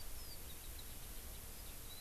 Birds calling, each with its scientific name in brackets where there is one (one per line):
Eurasian Skylark (Alauda arvensis)